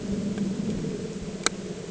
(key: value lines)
label: anthrophony, boat engine
recorder: HydroMoth